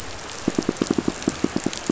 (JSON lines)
{"label": "biophony, pulse", "recorder": "SoundTrap 500"}